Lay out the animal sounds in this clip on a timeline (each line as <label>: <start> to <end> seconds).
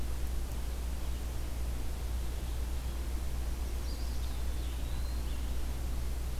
Eastern Wood-Pewee (Contopus virens): 3.6 to 5.4 seconds
Red-eyed Vireo (Vireo olivaceus): 4.4 to 6.4 seconds